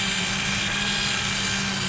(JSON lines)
{"label": "anthrophony, boat engine", "recorder": "SoundTrap 500"}